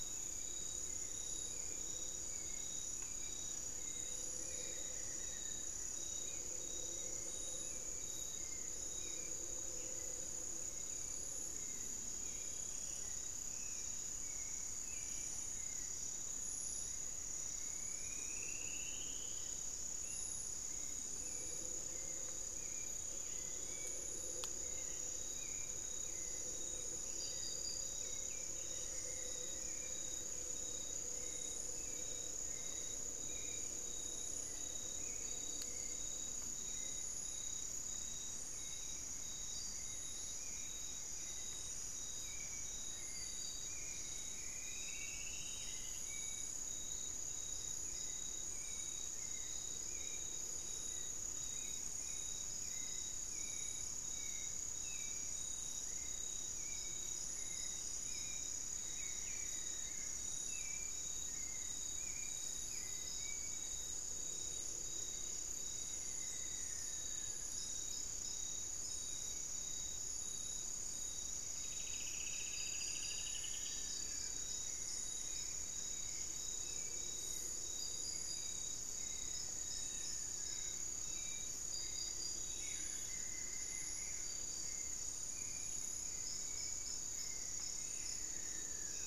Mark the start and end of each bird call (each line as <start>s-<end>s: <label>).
0.0s-89.1s: Hauxwell's Thrush (Turdus hauxwelli)
4.2s-6.0s: Amazonian Barred-Woodcreeper (Dendrocolaptes certhia)
16.9s-19.8s: Striped Woodcreeper (Xiphorhynchus obsoletus)
28.2s-30.4s: Amazonian Barred-Woodcreeper (Dendrocolaptes certhia)
43.6s-46.5s: Striped Woodcreeper (Xiphorhynchus obsoletus)
58.4s-60.4s: Amazonian Barred-Woodcreeper (Dendrocolaptes certhia)
65.8s-68.0s: Amazonian Barred-Woodcreeper (Dendrocolaptes certhia)
71.2s-74.1s: Striped Woodcreeper (Xiphorhynchus obsoletus)
72.3s-74.7s: Black-faced Antthrush (Formicarius analis)
78.8s-89.1s: Amazonian Barred-Woodcreeper (Dendrocolaptes certhia)
82.3s-84.4s: Buff-throated Woodcreeper (Xiphorhynchus guttatus)